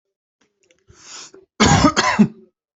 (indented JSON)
{
  "expert_labels": [
    {
      "quality": "good",
      "cough_type": "dry",
      "dyspnea": false,
      "wheezing": false,
      "stridor": false,
      "choking": false,
      "congestion": false,
      "nothing": true,
      "diagnosis": "COVID-19",
      "severity": "mild"
    }
  ],
  "age": 28,
  "gender": "male",
  "respiratory_condition": false,
  "fever_muscle_pain": false,
  "status": "symptomatic"
}